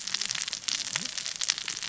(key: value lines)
label: biophony, cascading saw
recorder: SoundTrap 600 or HydroMoth